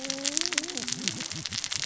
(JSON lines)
{"label": "biophony, cascading saw", "recorder": "SoundTrap 600 or HydroMoth"}